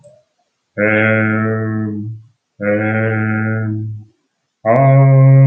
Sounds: Sigh